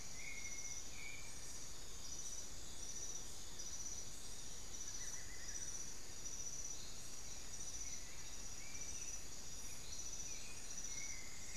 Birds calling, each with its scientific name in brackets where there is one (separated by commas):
White-necked Thrush (Turdus albicollis), Long-winged Antwren (Myrmotherula longipennis), Amazonian Barred-Woodcreeper (Dendrocolaptes certhia)